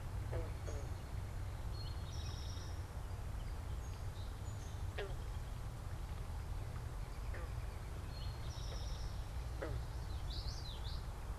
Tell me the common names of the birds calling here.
American Robin, Eastern Towhee, Song Sparrow, Common Yellowthroat